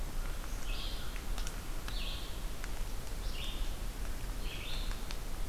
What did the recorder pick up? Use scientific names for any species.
Corvus brachyrhynchos, Vireo olivaceus